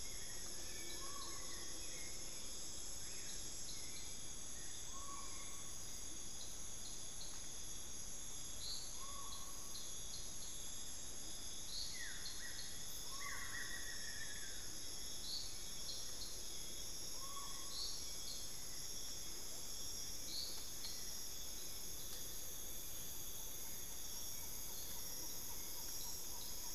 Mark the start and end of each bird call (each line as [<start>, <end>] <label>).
[0.00, 1.54] Long-billed Woodcreeper (Nasica longirostris)
[0.00, 5.94] Hauxwell's Thrush (Turdus hauxwelli)
[0.00, 18.24] Collared Forest-Falcon (Micrastur semitorquatus)
[6.04, 6.44] Amazonian Motmot (Momotus momota)
[11.84, 14.74] Buff-throated Woodcreeper (Xiphorhynchus guttatus)
[13.74, 26.74] Hauxwell's Thrush (Turdus hauxwelli)
[22.84, 26.74] Collared Forest-Falcon (Micrastur semitorquatus)